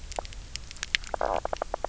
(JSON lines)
{"label": "biophony, knock croak", "recorder": "SoundTrap 300"}